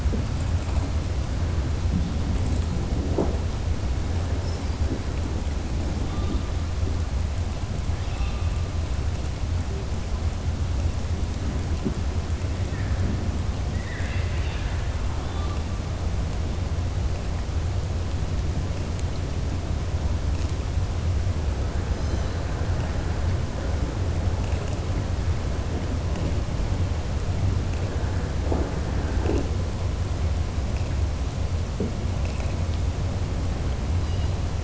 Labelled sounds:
13.7	14.8	killer whale, southern resident, 1.4 to 4.6 kHz

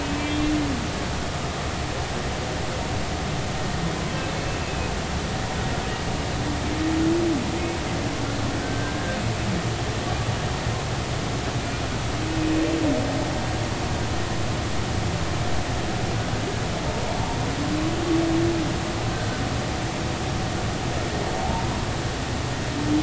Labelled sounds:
0.0	0.5	humpback whale, 2.5 to 3.7 kHz
4.6	4.9	humpback whale, 2.4 to 2.7 kHz
8.6	9.2	humpback whale, 1.5 to 1.7 kHz
19.1	19.4	humpback whale, 1.5 to 1.6 kHz
21.4	21.7	humpback whale, 0.80 to 0.99 kHz

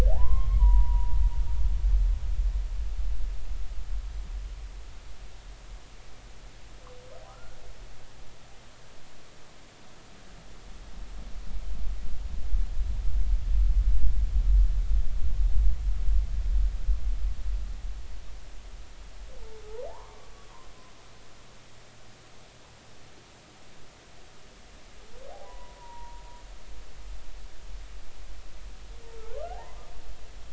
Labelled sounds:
0.1	1.2	humpback whale, 0.80 to 1.2 kHz
7.3	7.6	humpback whale, 1.2 to 1.5 kHz
19.9	20.7	humpback whale, 0.80 to 1.2 kHz
25.4	26.2	humpback whale, 0.90 to 2.0 kHz
29.2	29.9	humpback whale, 0.80 to 1.7 kHz

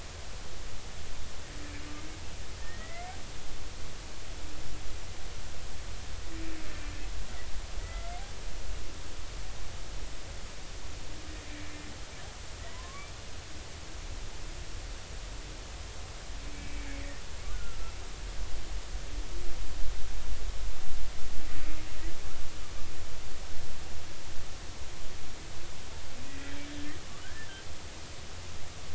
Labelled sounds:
2.6	3.1	humpback whale, 1.8 to 2.3 kHz
7.8	8.1	humpback whale, 1.2 to 2.1 kHz
12.7	13.1	humpback whale, 0.96 to 1.2 kHz
16.5	17.8	humpback whale, 1.3 to 2.4 kHz
26.3	26.6	humpback whale, 1.6 to 2.0 kHz
27.2	27.5	humpback whale, 1.4 to 1.8 kHz

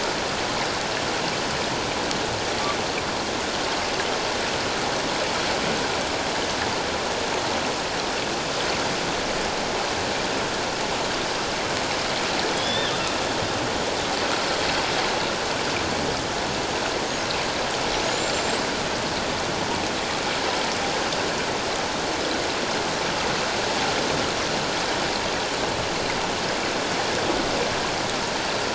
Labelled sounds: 12.5	12.9	killer whale, northern resident, 3.1 to 5.3 kHz
18.1	18.6	killer whale, 6.8 to 8.0 kHz

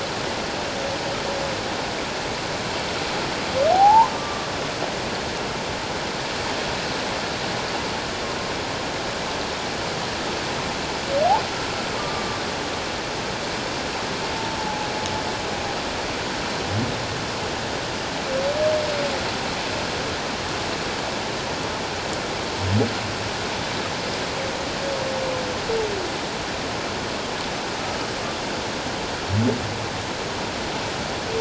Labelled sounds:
3.7	4.5	humpback whale, 0.78 to 1.2 kHz
12.0	12.3	humpback whale, 1.1 to 1.2 kHz
14.6	14.9	humpback whale, 0.78 to 1.0 kHz

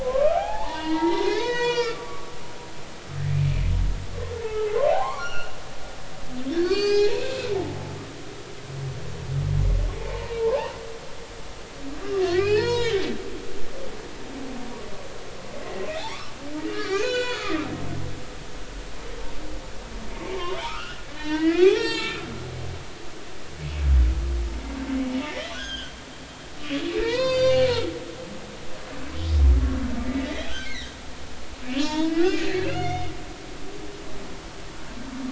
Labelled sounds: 0.0	2.3	humpback whale, 0.80 to 6.9 kHz
4.4	5.6	humpback whale, 0.80 to 6.0 kHz
6.6	7.8	humpback whale, 0.80 to 7.4 kHz
10.4	10.8	humpback whale, 0.80 to 1.2 kHz
12.2	13.0	humpback whale, 0.80 to 5.4 kHz
15.6	17.6	humpback whale, 1.0 to 7.1 kHz
20.3	22.2	humpback whale, 0.80 to 7.8 kHz
25.3	26.0	humpback whale, 1.4 to 6.6 kHz
27.0	27.9	humpback whale, 0.86 to 7.4 kHz
30.0	30.9	humpback whale, 1.4 to 4.4 kHz
31.7	32.1	humpback whale, 0.86 to 4.7 kHz
32.6	33.1	humpback whale, 1.3 to 5.1 kHz

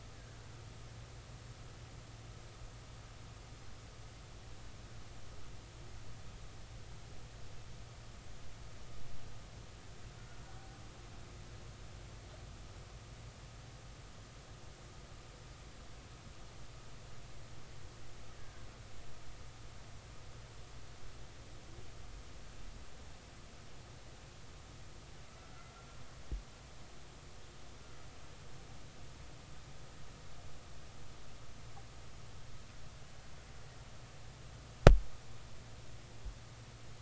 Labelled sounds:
25.5	26.0	killer whale, Bigg's (transient), 1.3 to 1.5 kHz

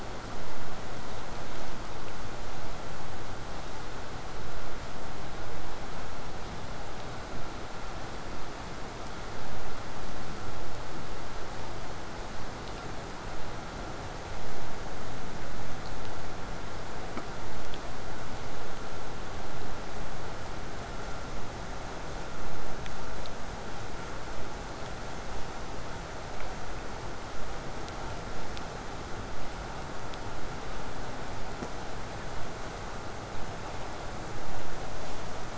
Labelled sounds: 21.9	23.5	killer whale, southern resident, 1.6 to 8.0 kHz

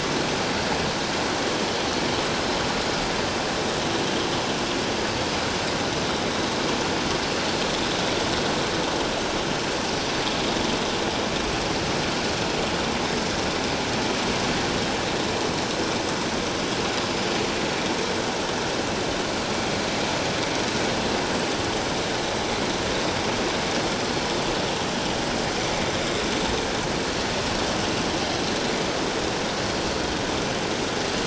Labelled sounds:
26.0	26.2	vessel noise, 3.6 to 3.8 kHz

